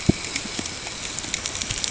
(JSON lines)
{"label": "ambient", "recorder": "HydroMoth"}